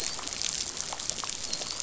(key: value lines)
label: biophony, dolphin
recorder: SoundTrap 500